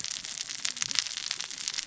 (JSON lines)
{"label": "biophony, cascading saw", "recorder": "SoundTrap 600 or HydroMoth"}